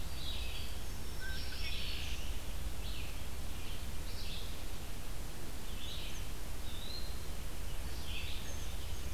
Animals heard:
Red-eyed Vireo (Vireo olivaceus), Red-winged Blackbird (Agelaius phoeniceus), Eastern Wood-Pewee (Contopus virens), Black-throated Green Warbler (Setophaga virens)

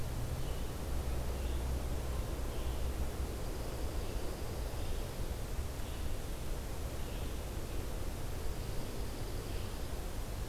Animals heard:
Red-eyed Vireo (Vireo olivaceus), Dark-eyed Junco (Junco hyemalis)

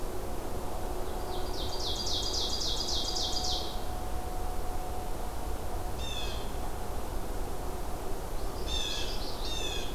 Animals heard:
Common Yellowthroat (Geothlypis trichas), Blue Jay (Cyanocitta cristata), Ovenbird (Seiurus aurocapilla)

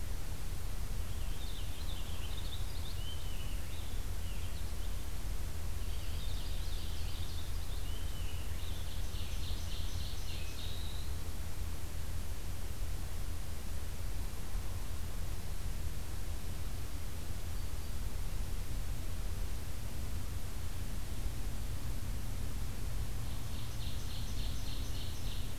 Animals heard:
Purple Finch (Haemorhous purpureus), Black-throated Green Warbler (Setophaga virens), Ovenbird (Seiurus aurocapilla)

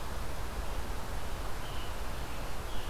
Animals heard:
Scarlet Tanager (Piranga olivacea)

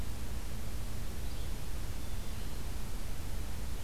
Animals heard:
Hermit Thrush (Catharus guttatus), Yellow-bellied Flycatcher (Empidonax flaviventris)

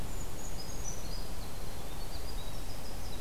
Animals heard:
Winter Wren (Troglodytes hiemalis), Brown Creeper (Certhia americana)

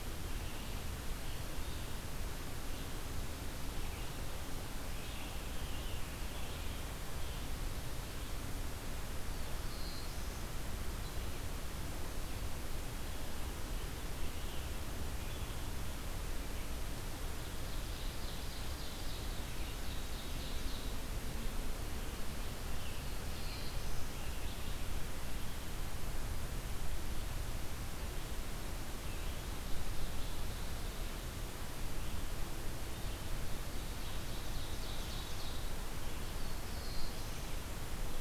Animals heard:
Red-eyed Vireo (Vireo olivaceus), Black-throated Blue Warbler (Setophaga caerulescens), Ovenbird (Seiurus aurocapilla)

